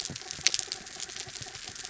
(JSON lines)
{"label": "anthrophony, mechanical", "recorder": "SoundTrap 300"}